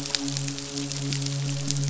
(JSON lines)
{"label": "biophony, midshipman", "recorder": "SoundTrap 500"}